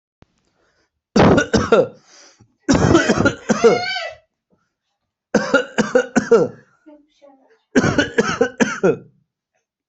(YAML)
expert_labels:
- quality: good
  cough_type: unknown
  dyspnea: false
  wheezing: false
  stridor: false
  choking: false
  congestion: false
  nothing: true
  diagnosis: upper respiratory tract infection
  severity: mild
age: 32
gender: male
respiratory_condition: false
fever_muscle_pain: true
status: symptomatic